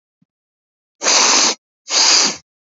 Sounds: Sniff